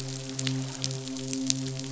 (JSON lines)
{"label": "biophony, midshipman", "recorder": "SoundTrap 500"}